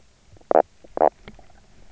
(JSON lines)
{"label": "biophony, knock croak", "recorder": "SoundTrap 300"}